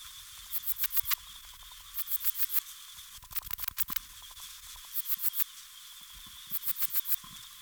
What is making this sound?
Platycleis albopunctata, an orthopteran